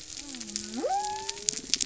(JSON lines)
{"label": "biophony", "recorder": "SoundTrap 300"}